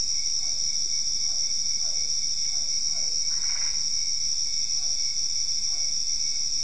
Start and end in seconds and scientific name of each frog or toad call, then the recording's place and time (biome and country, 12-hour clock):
0.0	6.6	Physalaemus cuvieri
3.2	3.9	Boana albopunctata
Cerrado, Brazil, 9:00pm